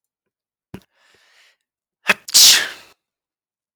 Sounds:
Sneeze